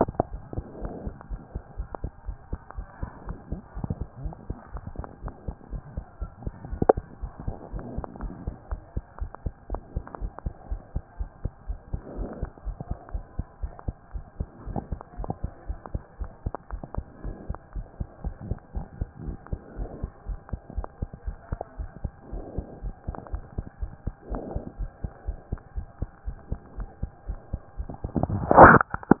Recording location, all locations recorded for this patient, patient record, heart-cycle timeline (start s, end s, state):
pulmonary valve (PV)
aortic valve (AV)+pulmonary valve (PV)+tricuspid valve (TV)+tricuspid valve (TV)+mitral valve (MV)
#Age: Child
#Sex: Male
#Height: 111.0 cm
#Weight: 24.0 kg
#Pregnancy status: False
#Murmur: Absent
#Murmur locations: nan
#Most audible location: nan
#Systolic murmur timing: nan
#Systolic murmur shape: nan
#Systolic murmur grading: nan
#Systolic murmur pitch: nan
#Systolic murmur quality: nan
#Diastolic murmur timing: nan
#Diastolic murmur shape: nan
#Diastolic murmur grading: nan
#Diastolic murmur pitch: nan
#Diastolic murmur quality: nan
#Outcome: Normal
#Campaign: 2014 screening campaign
0.00	7.72	unannotated
7.72	7.84	S1
7.84	7.96	systole
7.96	8.04	S2
8.04	8.22	diastole
8.22	8.32	S1
8.32	8.46	systole
8.46	8.54	S2
8.54	8.70	diastole
8.70	8.82	S1
8.82	8.94	systole
8.94	9.04	S2
9.04	9.20	diastole
9.20	9.30	S1
9.30	9.44	systole
9.44	9.54	S2
9.54	9.70	diastole
9.70	9.82	S1
9.82	9.94	systole
9.94	10.04	S2
10.04	10.20	diastole
10.20	10.32	S1
10.32	10.44	systole
10.44	10.54	S2
10.54	10.70	diastole
10.70	10.80	S1
10.80	10.94	systole
10.94	11.02	S2
11.02	11.18	diastole
11.18	11.30	S1
11.30	11.42	systole
11.42	11.52	S2
11.52	11.68	diastole
11.68	11.78	S1
11.78	11.92	systole
11.92	12.00	S2
12.00	12.16	diastole
12.16	12.30	S1
12.30	12.40	systole
12.40	12.50	S2
12.50	12.66	diastole
12.66	12.76	S1
12.76	12.88	systole
12.88	12.98	S2
12.98	13.12	diastole
13.12	13.24	S1
13.24	13.36	systole
13.36	13.46	S2
13.46	13.62	diastole
13.62	13.72	S1
13.72	13.86	systole
13.86	13.96	S2
13.96	14.14	diastole
14.14	14.24	S1
14.24	14.38	systole
14.38	14.48	S2
14.48	14.68	diastole
14.68	14.82	S1
14.82	14.90	systole
14.90	15.00	S2
15.00	15.18	diastole
15.18	15.30	S1
15.30	15.42	systole
15.42	15.52	S2
15.52	15.68	diastole
15.68	15.78	S1
15.78	15.92	systole
15.92	16.02	S2
16.02	16.20	diastole
16.20	16.30	S1
16.30	16.44	systole
16.44	16.54	S2
16.54	16.72	diastole
16.72	16.82	S1
16.82	16.96	systole
16.96	17.04	S2
17.04	17.24	diastole
17.24	17.36	S1
17.36	17.48	systole
17.48	17.58	S2
17.58	17.74	diastole
17.74	17.86	S1
17.86	17.98	systole
17.98	18.08	S2
18.08	18.24	diastole
18.24	18.34	S1
18.34	18.48	systole
18.48	18.58	S2
18.58	18.74	diastole
18.74	18.86	S1
18.86	19.00	systole
19.00	19.08	S2
19.08	19.24	diastole
19.24	19.38	S1
19.38	19.50	systole
19.50	19.60	S2
19.60	19.78	diastole
19.78	19.90	S1
19.90	20.02	systole
20.02	20.10	S2
20.10	20.28	diastole
20.28	20.38	S1
20.38	20.52	systole
20.52	20.60	S2
20.60	20.76	diastole
20.76	20.88	S1
20.88	21.00	systole
21.00	21.10	S2
21.10	21.26	diastole
21.26	21.36	S1
21.36	21.50	systole
21.50	21.60	S2
21.60	21.78	diastole
21.78	21.90	S1
21.90	22.02	systole
22.02	22.12	S2
22.12	22.32	diastole
22.32	22.44	S1
22.44	22.56	systole
22.56	22.66	S2
22.66	22.82	diastole
22.82	22.94	S1
22.94	23.06	systole
23.06	23.16	S2
23.16	23.32	diastole
23.32	23.44	S1
23.44	23.56	systole
23.56	23.66	S2
23.66	23.80	diastole
23.80	23.92	S1
23.92	24.04	systole
24.04	24.14	S2
24.14	24.30	diastole
24.30	24.42	S1
24.42	24.54	systole
24.54	24.62	S2
24.62	24.78	diastole
24.78	24.90	S1
24.90	25.02	systole
25.02	25.12	S2
25.12	25.26	diastole
25.26	25.38	S1
25.38	25.50	systole
25.50	25.60	S2
25.60	25.76	diastole
25.76	25.86	S1
25.86	26.00	systole
26.00	26.10	S2
26.10	26.26	diastole
26.26	26.36	S1
26.36	26.50	systole
26.50	26.60	S2
26.60	26.78	diastole
26.78	26.88	S1
26.88	27.02	systole
27.02	27.10	S2
27.10	27.28	diastole
27.28	27.38	S1
27.38	27.52	systole
27.52	27.62	S2
27.62	27.78	diastole
27.78	29.20	unannotated